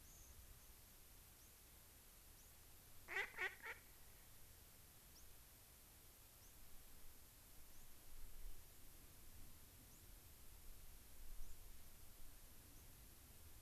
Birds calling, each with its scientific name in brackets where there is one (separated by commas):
Mallard (Anas platyrhynchos), White-crowned Sparrow (Zonotrichia leucophrys)